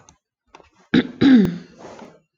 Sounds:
Throat clearing